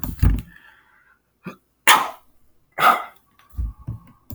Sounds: Sneeze